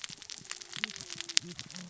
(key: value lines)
label: biophony, cascading saw
recorder: SoundTrap 600 or HydroMoth